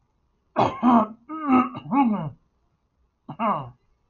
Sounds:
Throat clearing